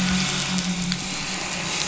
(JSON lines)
{"label": "anthrophony, boat engine", "recorder": "SoundTrap 500"}